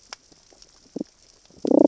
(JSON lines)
{"label": "biophony, damselfish", "recorder": "SoundTrap 600 or HydroMoth"}